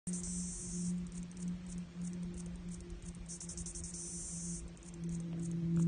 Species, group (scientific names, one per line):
Pauropsalta mneme
Cicadidae